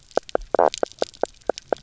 {"label": "biophony, knock croak", "recorder": "SoundTrap 300"}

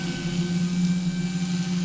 {"label": "anthrophony, boat engine", "recorder": "SoundTrap 500"}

